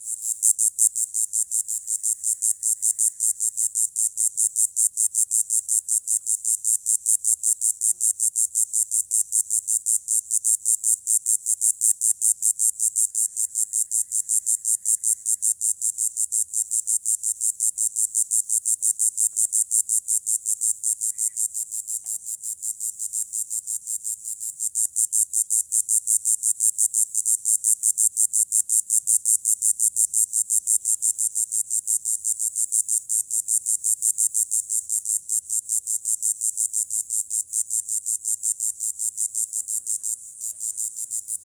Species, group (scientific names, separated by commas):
Diceroprocta texana, Cicadidae